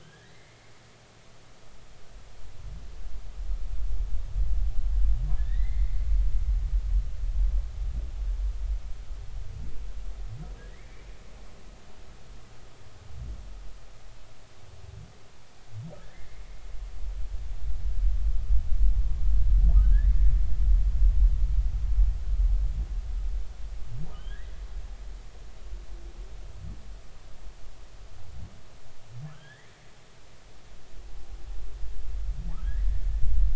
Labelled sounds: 0.0	0.8	humpback whale, 1.5 to 3.5 kHz
5.4	6.1	humpback whale, 1.7 to 4.1 kHz
10.7	11.0	humpback whale, 1.7 to 2.4 kHz
16.0	16.4	humpback whale, 1.5 to 2.2 kHz
19.8	20.1	humpback whale, 1.4 to 2.0 kHz
24.1	24.5	humpback whale, 1.4 to 3.5 kHz
29.3	29.7	humpback whale, 1.2 to 3.6 kHz
32.6	32.9	humpback whale, 1.5 to 2.0 kHz

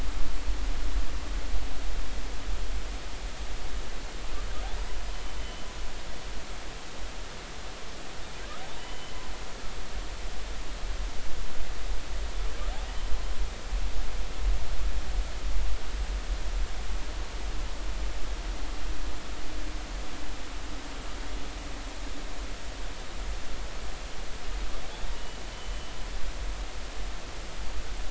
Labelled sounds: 5.1	5.7	humpback whale, 3.0 to 3.1 kHz
8.8	9.1	humpback whale, 2.8 to 3.1 kHz
25.1	25.7	humpback whale, 2.9 to 3.1 kHz

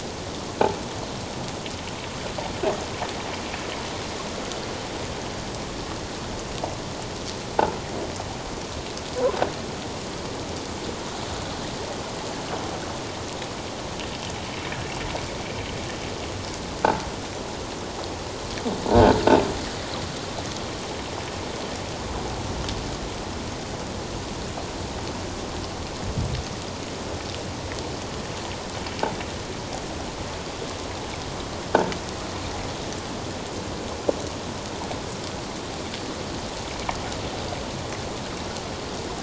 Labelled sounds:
18.9	19.1	croaking sound likely from a nearby submerged object, 1.4 to 1.7 kHz

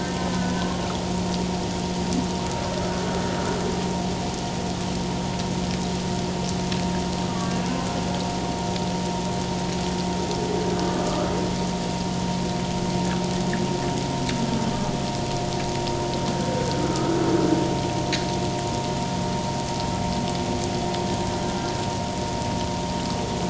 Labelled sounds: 0.6	0.9	humpback whale, 1.0 to 1.1 kHz
7.3	7.9	humpback whale, 1.1 to 1.7 kHz
10.9	11.3	humpback whale, 1.1 to 1.4 kHz
16.9	17.1	humpback whale, 1.2 to 1.4 kHz

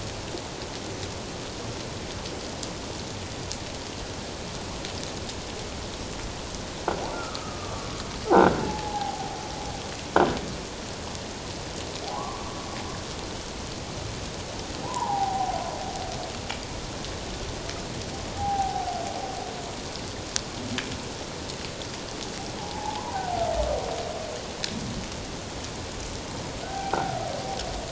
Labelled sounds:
7.1	8.0	humpback whale, 1.1 to 1.5 kHz
8.6	9.3	humpback whale, 0.78 to 0.94 kHz
12.1	12.4	humpback whale, 0.94 to 1.2 kHz
14.8	15.6	humpback whale, 0.78 to 1.1 kHz
18.4	18.9	humpback whale, 0.78 to 0.88 kHz
22.6	23.4	humpback whale, 0.78 to 1.1 kHz
26.6	27.0	humpback whale, 0.78 to 1.6 kHz

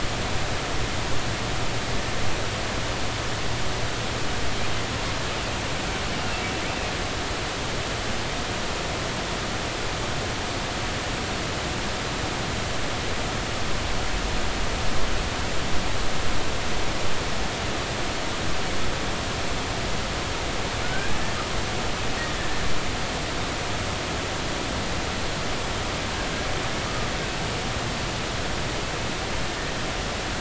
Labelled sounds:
20.8	21.1	killer whale, Bigg's (transient), 1.4 to 1.7 kHz
22.4	22.6	killer whale, Bigg's (transient), 1.7 to 1.8 kHz

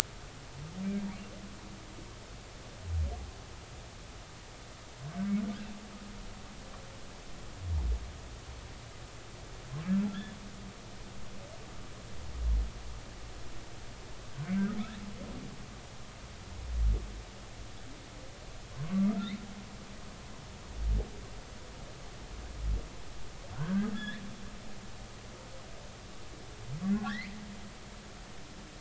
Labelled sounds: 14.3	14.5	humpback whale, 1.5 to 1.6 kHz
18.8	19.3	humpback whale, 0.99 to 1.4 kHz
23.5	24.2	humpback whale, 1.3 to 3.6 kHz
26.9	27.3	humpback whale, 1.3 to 2.4 kHz

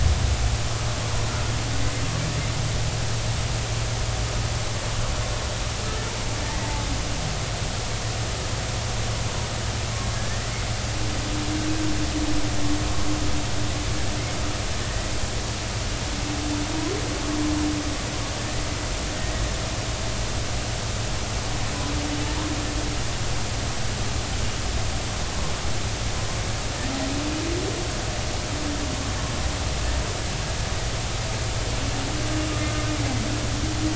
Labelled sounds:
6.4	6.7	humpback whale, 1.8 to 2.0 kHz
10.1	10.5	humpback whale, 1.6 to 2.0 kHz
19.2	19.4	humpback whale, 1.8 to 2.0 kHz

